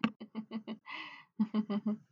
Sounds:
Laughter